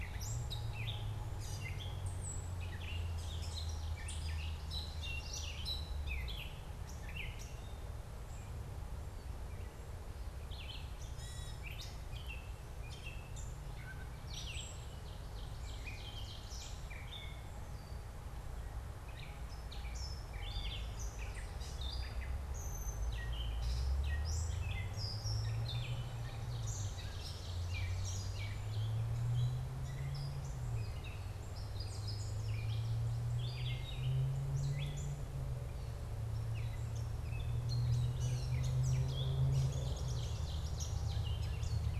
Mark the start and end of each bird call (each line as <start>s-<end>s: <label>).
0.0s-42.0s: Gray Catbird (Dumetella carolinensis)
14.4s-16.8s: Ovenbird (Seiurus aurocapilla)
25.8s-29.0s: Ovenbird (Seiurus aurocapilla)
39.4s-41.5s: Ovenbird (Seiurus aurocapilla)